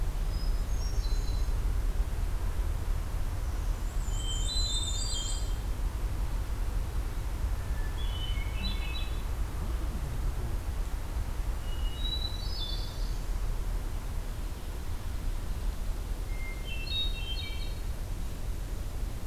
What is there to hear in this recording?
Hermit Thrush, Black-and-white Warbler